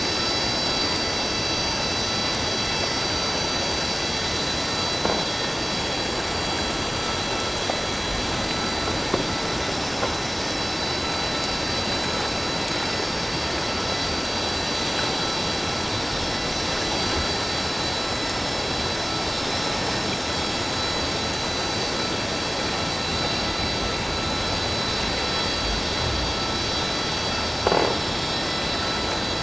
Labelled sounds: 9.7	9.9	vessel noise, 5.2 to 5.3 kHz

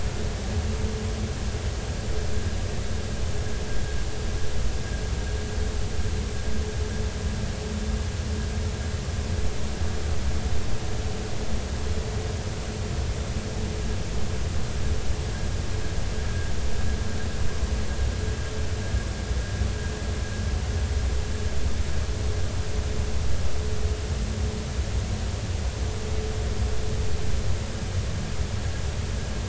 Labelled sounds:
16.3	16.5	vessel noise, 1.6 to 1.7 kHz

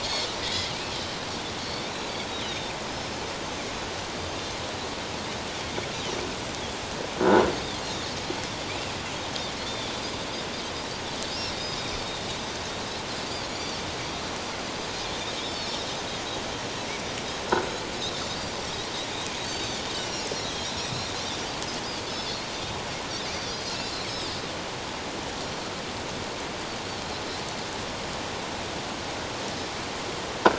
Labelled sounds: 0.0	0.7	Pacific white-sided dolphin, 1.9 to 6.6 kHz
1.6	1.9	Pacific white-sided dolphin, 4.3 to 4.6 kHz
2.3	3.2	Pacific white-sided dolphin, 3.5 to 5.4 kHz
7.2	7.5	croaking sound likely from a nearby submerged object, 1.3 to 1.5 kHz
7.6	7.8	Pacific white-sided dolphin, 3.1 to 3.8 kHz
8.7	9.0	Pacific white-sided dolphin, 2.2 to 2.8 kHz
9.7	9.9	Pacific white-sided dolphin, 3.3 to 3.7 kHz
13.5	13.8	Pacific white-sided dolphin, 4.4 to 5.9 kHz
15.0	15.9	Pacific white-sided dolphin, 3.1 to 5.6 kHz
17.9	18.2	Pacific white-sided dolphin, 7.8 to 7.9 kHz
19.4	20.3	Pacific white-sided dolphin, 2.7 to 6.1 kHz
23.3	23.7	Pacific white-sided dolphin, 4.5 to 5.1 kHz

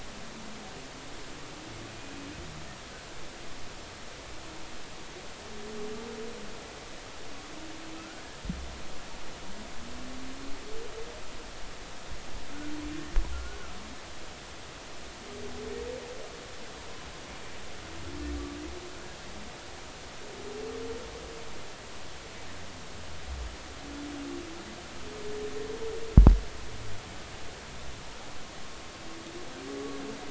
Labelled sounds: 2.0	2.3	humpback whale, 2.4 to 2.6 kHz
8.0	8.2	humpback whale, 1.2 to 1.5 kHz
13.3	13.6	humpback whale, 1.3 to 1.5 kHz

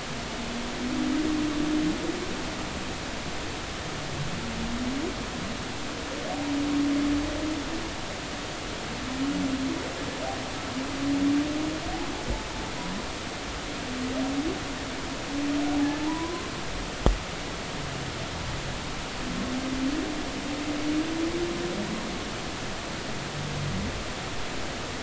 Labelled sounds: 16.0	16.4	humpback whale, 0.83 to 1.1 kHz

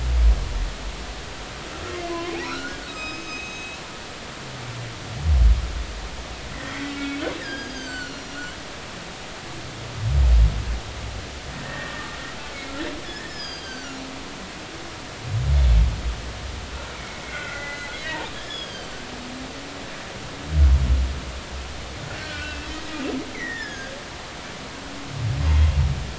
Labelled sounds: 2.1	3.8	humpback whale, 0.96 to 7.6 kHz
6.7	8.4	humpback whale, 1.4 to 7.6 kHz
11.6	12.1	humpback whale, 1.8 to 1.9 kHz
13.0	14.1	humpback whale, 1.3 to 6.3 kHz
16.9	17.9	humpback whale, 1.3 to 2.4 kHz
18.3	19.0	humpback whale, 3.0 to 5.3 kHz
22.1	22.7	humpback whale, 1.4 to 3.1 kHz
23.3	24.0	humpback whale, 1.5 to 5.4 kHz

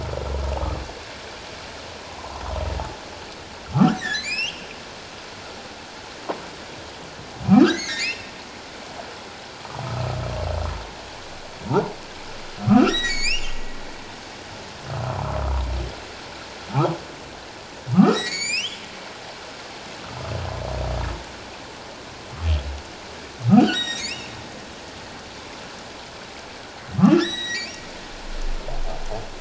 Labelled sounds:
2.2	2.4	humpback whale, 0.78 to 1.2 kHz
4.0	4.7	humpback whale, 1.6 to 5.7 kHz
7.5	8.3	humpback whale, 1.0 to 4.0 kHz
12.7	13.5	humpback whale, 1.1 to 7.4 kHz
17.9	18.8	humpback whale, 1.0 to 7.6 kHz
20.0	20.3	humpback whale, 1.2 to 1.5 kHz
23.6	24.3	humpback whale, 1.4 to 7.7 kHz
27.2	27.8	humpback whale, 1.6 to 7.9 kHz

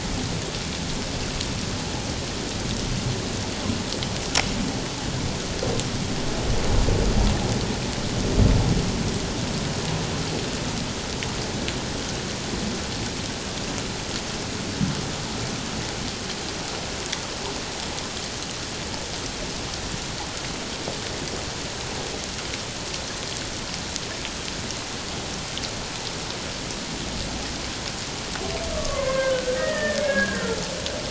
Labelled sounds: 28.7	30.6	humpback whale, 0.91 to 2.2 kHz

